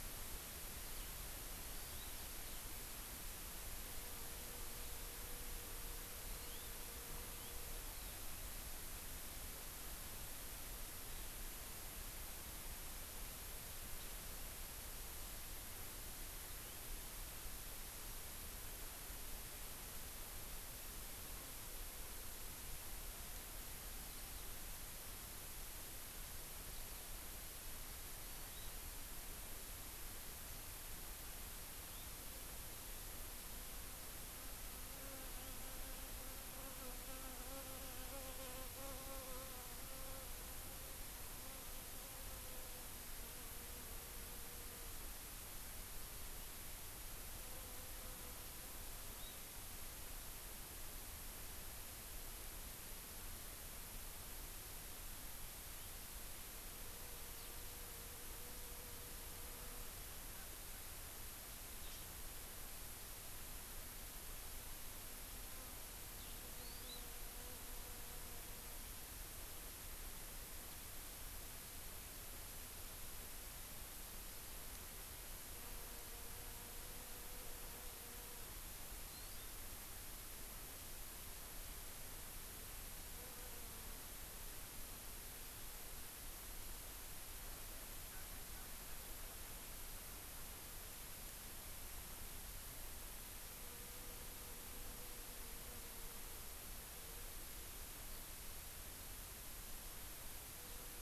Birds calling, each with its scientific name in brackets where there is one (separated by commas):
Hawaii Amakihi (Chlorodrepanis virens), Eurasian Skylark (Alauda arvensis)